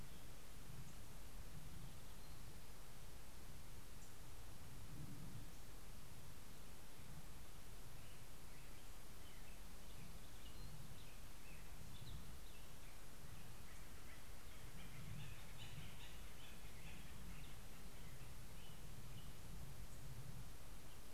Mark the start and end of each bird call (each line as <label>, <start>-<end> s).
American Robin (Turdus migratorius), 8.2-19.7 s
Acorn Woodpecker (Melanerpes formicivorus), 13.3-18.3 s